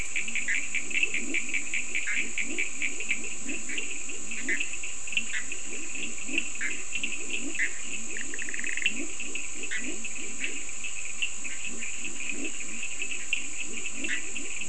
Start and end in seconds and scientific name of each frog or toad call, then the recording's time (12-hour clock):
0.0	14.6	Leptodactylus latrans
0.0	14.6	Sphaenorhynchus surdus
0.4	0.7	Boana bischoffi
2.0	2.3	Boana bischoffi
4.4	5.5	Boana bischoffi
6.5	9.9	Boana bischoffi
14.0	14.6	Boana bischoffi
4:00am